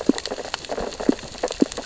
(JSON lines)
{"label": "biophony, sea urchins (Echinidae)", "recorder": "SoundTrap 600 or HydroMoth"}